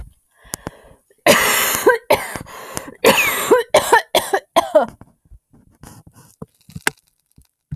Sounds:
Cough